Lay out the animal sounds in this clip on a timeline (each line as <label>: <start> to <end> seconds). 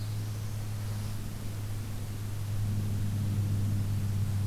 Black-throated Blue Warbler (Setophaga caerulescens): 0.0 to 0.7 seconds